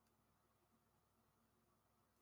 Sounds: Sigh